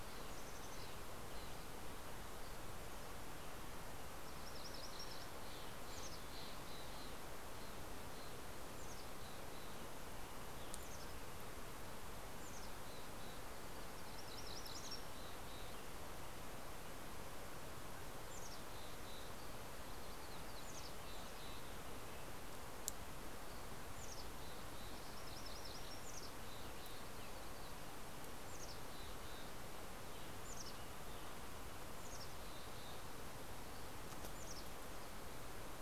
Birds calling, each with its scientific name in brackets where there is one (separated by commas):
Mountain Chickadee (Poecile gambeli), MacGillivray's Warbler (Geothlypis tolmiei), Red-breasted Nuthatch (Sitta canadensis), Mountain Quail (Oreortyx pictus), Steller's Jay (Cyanocitta stelleri)